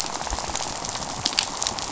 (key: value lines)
label: biophony, rattle
recorder: SoundTrap 500